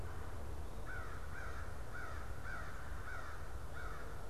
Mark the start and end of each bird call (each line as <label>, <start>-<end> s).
Red-bellied Woodpecker (Melanerpes carolinus), 0.0-0.7 s
American Crow (Corvus brachyrhynchos), 0.7-4.2 s